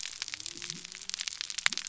{"label": "biophony", "recorder": "SoundTrap 300"}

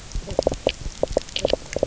{"label": "biophony, knock croak", "recorder": "SoundTrap 300"}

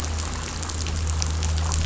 {"label": "anthrophony, boat engine", "recorder": "SoundTrap 500"}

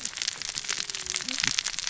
{"label": "biophony, cascading saw", "recorder": "SoundTrap 600 or HydroMoth"}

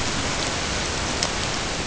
{"label": "ambient", "recorder": "HydroMoth"}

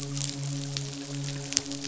{"label": "biophony, midshipman", "recorder": "SoundTrap 500"}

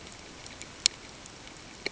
{"label": "ambient", "recorder": "HydroMoth"}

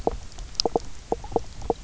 {"label": "biophony, knock croak", "recorder": "SoundTrap 300"}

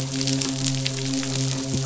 {"label": "biophony, midshipman", "recorder": "SoundTrap 500"}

